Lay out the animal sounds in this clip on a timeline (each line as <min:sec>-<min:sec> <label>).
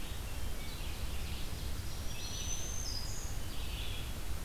0:00.0-0:04.4 Red-eyed Vireo (Vireo olivaceus)
0:00.1-0:01.1 Hermit Thrush (Catharus guttatus)
0:00.3-0:02.0 Ovenbird (Seiurus aurocapilla)
0:01.7-0:03.4 Black-throated Green Warbler (Setophaga virens)